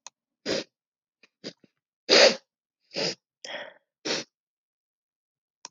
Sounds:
Sniff